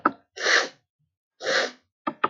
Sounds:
Sniff